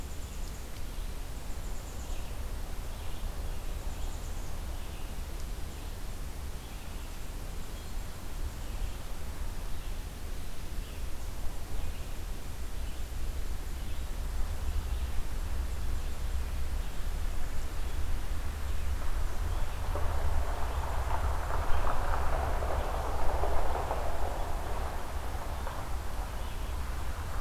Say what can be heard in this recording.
Black-capped Chickadee, Red-eyed Vireo